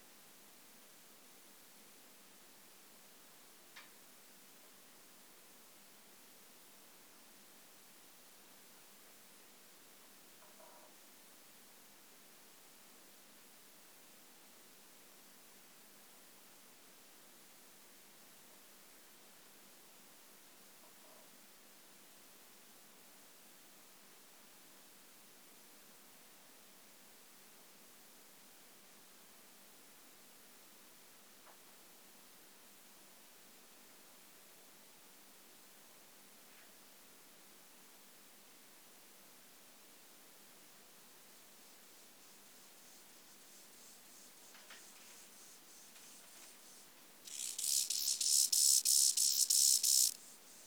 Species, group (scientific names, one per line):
Chorthippus mollis
Orthoptera